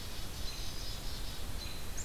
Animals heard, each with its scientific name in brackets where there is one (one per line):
Red-eyed Vireo (Vireo olivaceus)
Black-capped Chickadee (Poecile atricapillus)